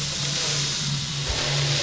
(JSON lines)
{"label": "anthrophony, boat engine", "recorder": "SoundTrap 500"}